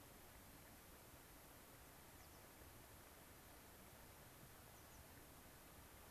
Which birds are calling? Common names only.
American Pipit